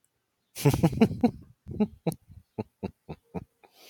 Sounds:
Laughter